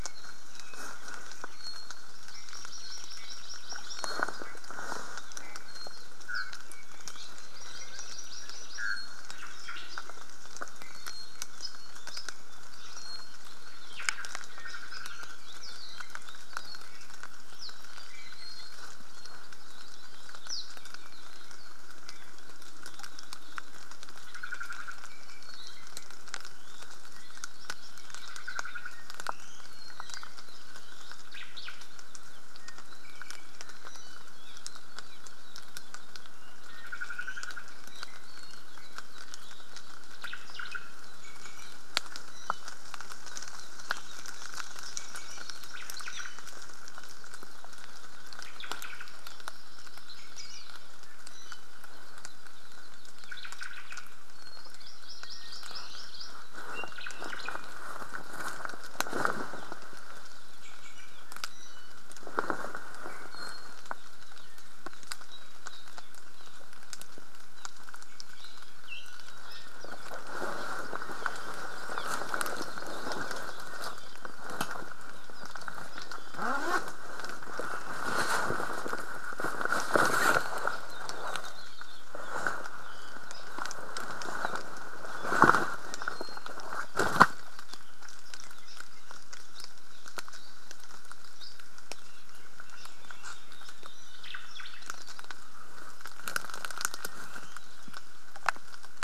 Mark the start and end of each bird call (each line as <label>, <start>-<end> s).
Iiwi (Drepanis coccinea), 0.0-1.1 s
Hawaii Amakihi (Chlorodrepanis virens), 2.1-4.2 s
Iiwi (Drepanis coccinea), 2.3-3.6 s
Iiwi (Drepanis coccinea), 5.3-6.1 s
Apapane (Himatione sanguinea), 6.3-6.6 s
Hawaii Amakihi (Chlorodrepanis virens), 7.5-9.0 s
Omao (Myadestes obscurus), 9.6-10.2 s
Iiwi (Drepanis coccinea), 10.7-11.5 s
Omao (Myadestes obscurus), 13.8-14.5 s
Apapane (Himatione sanguinea), 15.5-15.8 s
Apapane (Himatione sanguinea), 17.5-17.8 s
Iiwi (Drepanis coccinea), 18.1-18.9 s
Apapane (Himatione sanguinea), 20.4-20.7 s
Omao (Myadestes obscurus), 24.2-25.1 s
Iiwi (Drepanis coccinea), 25.1-25.9 s
Omao (Myadestes obscurus), 28.1-29.1 s
Iiwi (Drepanis coccinea), 29.2-29.8 s
Omao (Myadestes obscurus), 31.2-31.8 s
Iiwi (Drepanis coccinea), 32.6-34.3 s
Apapane (Himatione sanguinea), 34.4-34.6 s
Hawaii Akepa (Loxops coccineus), 34.5-36.5 s
Omao (Myadestes obscurus), 36.7-37.8 s
Iiwi (Drepanis coccinea), 36.9-39.7 s
Omao (Myadestes obscurus), 40.2-40.9 s
Iiwi (Drepanis coccinea), 41.1-41.8 s
Iiwi (Drepanis coccinea), 42.2-42.7 s
Hawaii Akepa (Loxops coccineus), 43.2-45.1 s
Iiwi (Drepanis coccinea), 44.9-45.5 s
Omao (Myadestes obscurus), 45.7-46.4 s
Hawaii Akepa (Loxops coccineus), 47.1-48.6 s
Omao (Myadestes obscurus), 48.3-49.2 s
Hawaii Amakihi (Chlorodrepanis virens), 48.9-50.9 s
Hawaii Akepa (Loxops coccineus), 50.3-50.7 s
Iiwi (Drepanis coccinea), 51.0-51.7 s
Hawaii Akepa (Loxops coccineus), 51.8-53.7 s
Omao (Myadestes obscurus), 53.2-54.1 s
Iiwi (Drepanis coccinea), 54.2-54.8 s
Hawaii Amakihi (Chlorodrepanis virens), 54.5-56.5 s
Iiwi (Drepanis coccinea), 55.2-56.1 s
Omao (Myadestes obscurus), 56.8-57.8 s
Iiwi (Drepanis coccinea), 60.5-62.0 s
Iiwi (Drepanis coccinea), 63.0-63.8 s
Apapane (Himatione sanguinea), 66.3-66.6 s
Apapane (Himatione sanguinea), 67.5-67.8 s
Warbling White-eye (Zosterops japonicus), 69.8-70.2 s
Apapane (Himatione sanguinea), 71.9-72.1 s
Apapane (Himatione sanguinea), 75.3-75.5 s
Hawaii Akepa (Loxops coccineus), 80.8-82.2 s
Iiwi (Drepanis coccinea), 82.8-83.2 s
Iiwi (Drepanis coccinea), 85.8-86.6 s
Apapane (Himatione sanguinea), 89.5-89.8 s
Apapane (Himatione sanguinea), 91.3-91.6 s
Omao (Myadestes obscurus), 94.1-95.0 s